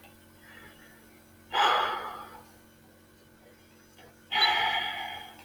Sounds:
Sigh